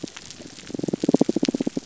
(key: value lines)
label: biophony, damselfish
recorder: SoundTrap 300